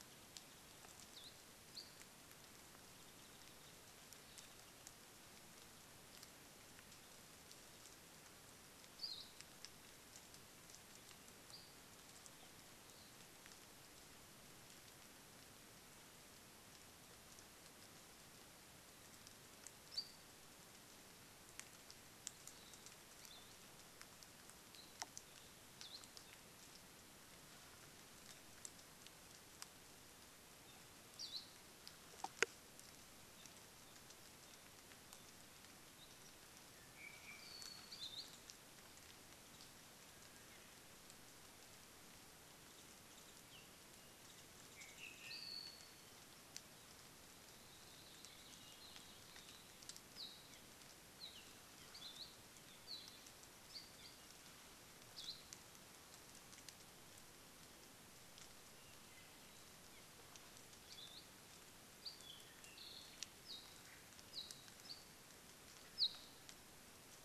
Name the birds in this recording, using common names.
Hawaii Akepa, Apapane, Warbling White-eye